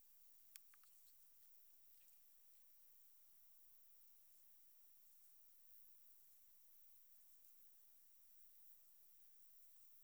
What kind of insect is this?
orthopteran